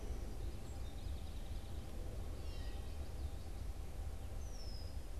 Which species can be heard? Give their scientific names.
Geothlypis trichas, Dumetella carolinensis, Agelaius phoeniceus